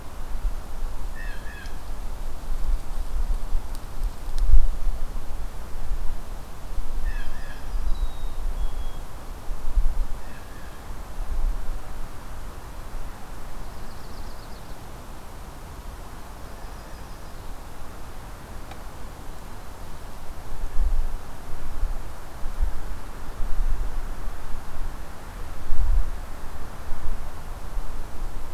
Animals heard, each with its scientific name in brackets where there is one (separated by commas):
Yellow-rumped Warbler (Setophaga coronata), Blue Jay (Cyanocitta cristata), Black-capped Chickadee (Poecile atricapillus)